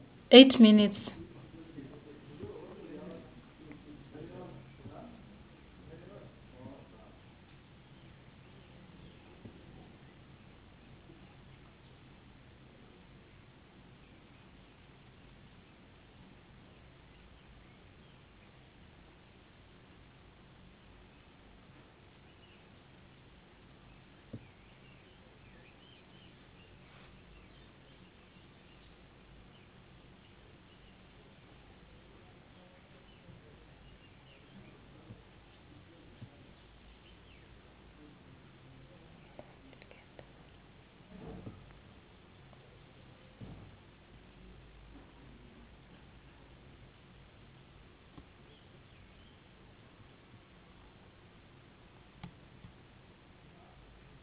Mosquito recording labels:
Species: no mosquito; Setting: insect culture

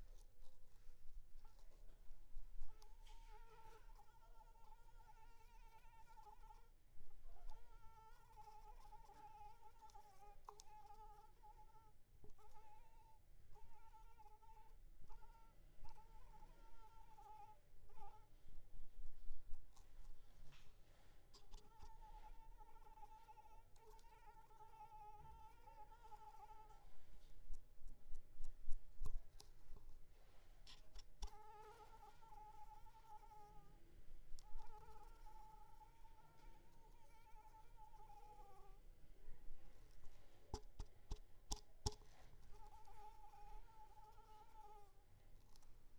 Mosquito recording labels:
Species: Anopheles arabiensis; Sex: female; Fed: unfed; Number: one; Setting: cup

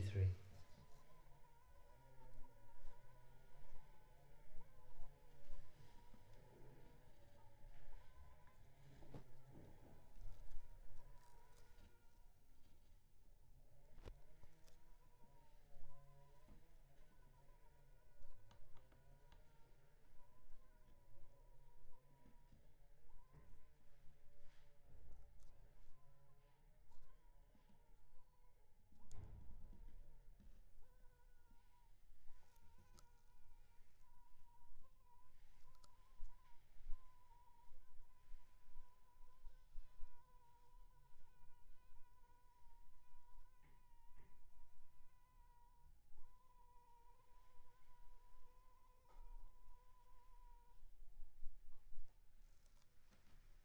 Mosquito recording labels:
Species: Anopheles funestus s.s.; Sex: female; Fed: unfed; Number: one; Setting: cup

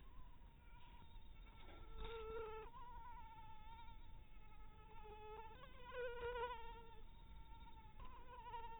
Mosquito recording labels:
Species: mosquito; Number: one; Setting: cup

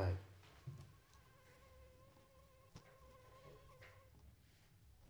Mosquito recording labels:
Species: Anopheles arabiensis; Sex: female; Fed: unfed; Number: one; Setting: cup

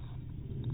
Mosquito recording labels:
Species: mosquito; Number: one; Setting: cup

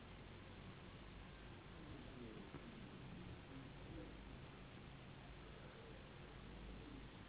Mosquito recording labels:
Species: Anopheles gambiae s.s.; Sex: female; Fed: unfed; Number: one; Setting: insect culture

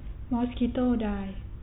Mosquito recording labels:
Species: mosquito; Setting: cup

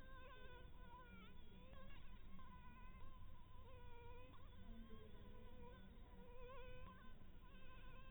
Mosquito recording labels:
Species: Anopheles dirus; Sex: female; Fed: blood-fed; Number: one; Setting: cup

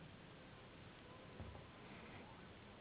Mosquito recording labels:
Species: Anopheles gambiae s.s.; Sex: female; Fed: unfed; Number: one; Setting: insect culture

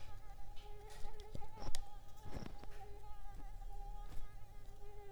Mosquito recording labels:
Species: Mansonia uniformis; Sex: female; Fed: unfed; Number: one; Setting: cup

